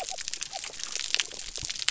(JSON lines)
{"label": "biophony", "recorder": "SoundTrap 300"}